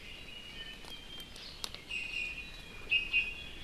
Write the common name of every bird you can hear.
Iiwi